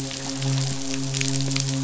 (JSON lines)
{"label": "biophony, midshipman", "recorder": "SoundTrap 500"}